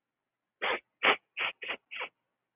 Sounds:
Sniff